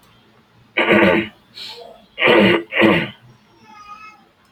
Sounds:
Throat clearing